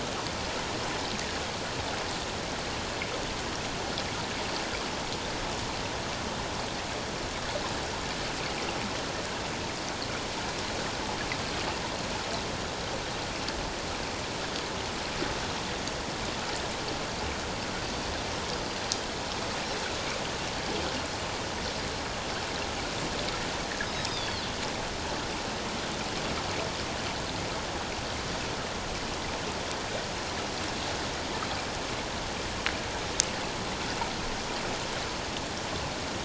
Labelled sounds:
24.1	24.4	Pacific white-sided dolphin, 3.1 to 4.7 kHz

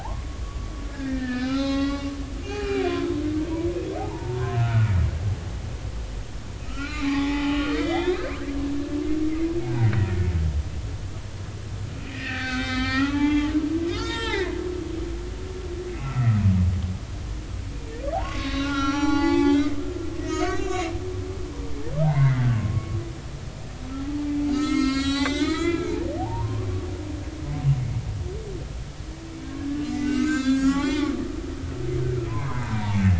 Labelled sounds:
0.0	2.1	humpback whale, 0.80 to 5.2 kHz
2.4	3.1	humpback whale, 1.2 to 4.2 kHz
4.0	4.9	humpback whale, 0.80 to 1.5 kHz
6.7	8.3	humpback whale, 0.80 to 4.5 kHz
9.7	9.9	humpback whale, 0.80 to 1.0 kHz
12.0	13.5	humpback whale, 0.80 to 5.1 kHz
13.9	14.5	humpback whale, 0.80 to 7.9 kHz
15.9	16.2	humpback whale, 2.4 to 2.7 kHz
18.1	19.8	humpback whale, 0.80 to 6.1 kHz
20.2	21.0	humpback whale, 1.4 to 6.7 kHz
22.0	23.0	humpback whale, 0.80 to 2.2 kHz
24.2	26.7	humpback whale, 0.80 to 7.9 kHz
29.8	33.0	humpback whale, 0.80 to 7.6 kHz

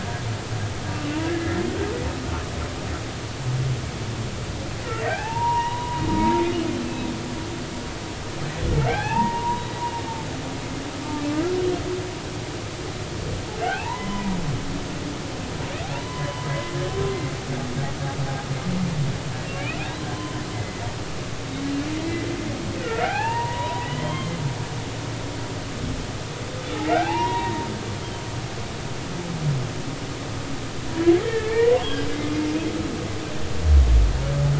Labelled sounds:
0.9	1.5	humpback whale, 1.6 to 2.8 kHz
4.8	6.4	humpback whale, 0.80 to 3.0 kHz
8.8	10.2	humpback whale, 0.80 to 3.6 kHz
11.3	11.6	humpback whale, 1.2 to 1.5 kHz
13.6	14.3	humpback whale, 0.80 to 3.1 kHz
16.0	16.7	humpback whale, 0.96 to 2.2 kHz
20.1	20.8	humpback whale, 0.96 to 3.1 kHz
21.9	22.3	humpback whale, 2.0 to 2.1 kHz
22.8	24.4	humpback whale, 0.80 to 3.2 kHz
26.8	27.7	humpback whale, 0.80 to 2.9 kHz
31.2	32.3	humpback whale, 0.86 to 3.4 kHz

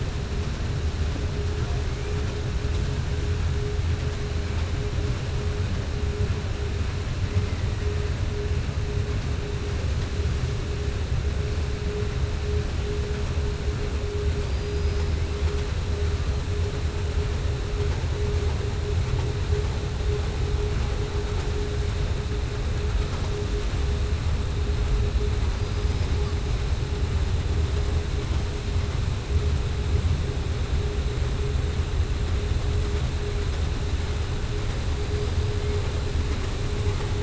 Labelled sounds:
14.4	15.1	killer whale, southern resident, 4.7 to 5.4 kHz

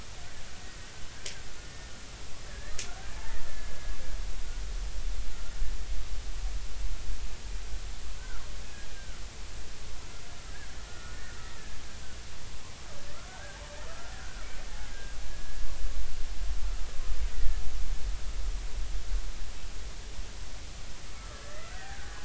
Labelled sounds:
1.6	1.9	killer whale, Bigg's (transient), 1.7 to 1.9 kHz
2.5	3.9	killer whale, Bigg's (transient), 1.3 to 1.9 kHz
5.3	5.5	killer whale, Bigg's (transient), 1.3 to 1.5 kHz
8.1	9.2	killer whale, Bigg's (transient), 1.3 to 1.8 kHz
10.9	11.8	killer whale, Bigg's (transient), 1.2 to 2.0 kHz
13.3	15.6	killer whale, Bigg's (transient), 1.2 to 1.9 kHz
17.3	17.6	killer whale, Bigg's (transient), 1.7 to 2.0 kHz
21.1	22.1	killer whale, Bigg's (transient), 1.1 to 2.1 kHz

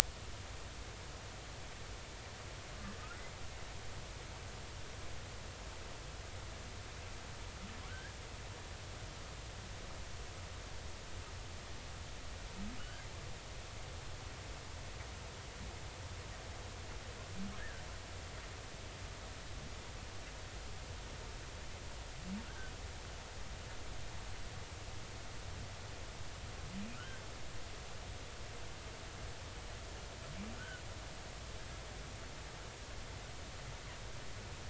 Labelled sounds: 7.9	8.2	humpback whale, 1.3 to 1.9 kHz
12.8	13.1	humpback whale, 1.4 to 1.7 kHz
17.6	17.8	humpback whale, 1.5 to 1.9 kHz
22.4	22.7	humpback whale, 1.3 to 1.7 kHz
26.9	27.2	humpback whale, 1.2 to 1.8 kHz
30.5	30.8	humpback whale, 1.3 to 1.7 kHz

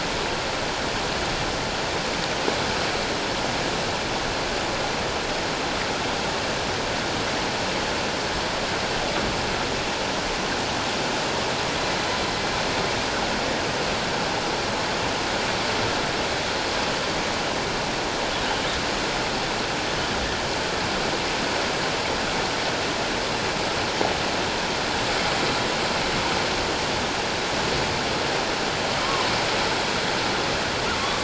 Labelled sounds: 29.0	29.3	humpback whale, 0.97 to 1.2 kHz
31.0	31.2	humpback whale, 1.0 to 1.2 kHz

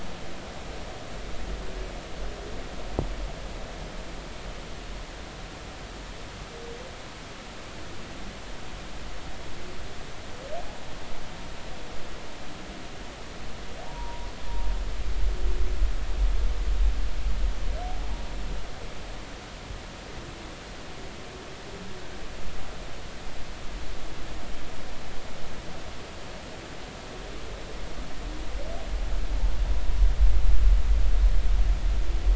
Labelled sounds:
13.8	14.3	humpback whale, 0.80 to 1.0 kHz

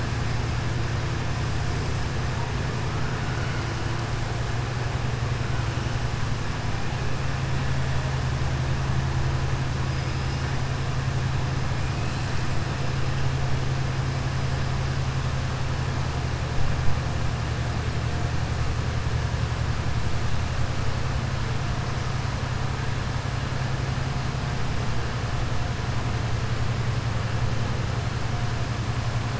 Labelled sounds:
9.9	10.4	killer whale, southern resident, 4.4 to 5.2 kHz

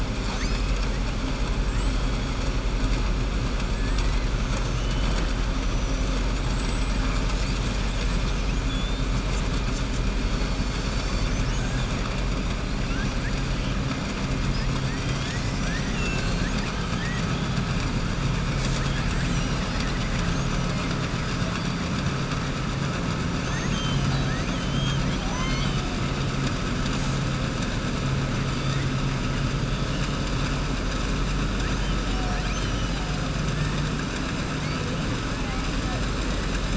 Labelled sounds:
1.6	2.1	killer whale, southern resident, 7.3 to 8.0 kHz
4.7	5.3	killer whale, southern resident, 0.76 to 4.1 kHz
6.3	7.0	killer whale, southern resident, 6.7 to 8.0 kHz
24.2	25.9	killer whale, southern resident, 0.77 to 6.2 kHz

